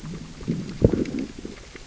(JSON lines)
{"label": "biophony, growl", "recorder": "SoundTrap 600 or HydroMoth"}